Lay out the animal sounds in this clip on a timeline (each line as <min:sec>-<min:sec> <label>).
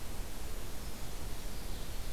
0:00.8-0:02.1 Ovenbird (Seiurus aurocapilla)